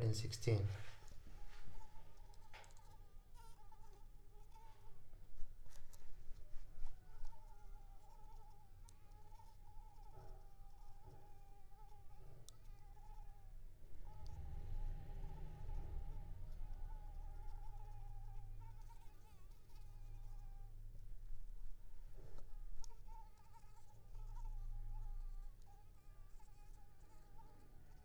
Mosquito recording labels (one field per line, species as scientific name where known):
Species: Anopheles squamosus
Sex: female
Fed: unfed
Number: one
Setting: cup